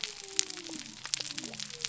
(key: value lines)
label: biophony
recorder: SoundTrap 300